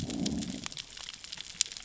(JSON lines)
{"label": "biophony, growl", "recorder": "SoundTrap 600 or HydroMoth"}